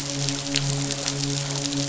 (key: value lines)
label: biophony, midshipman
recorder: SoundTrap 500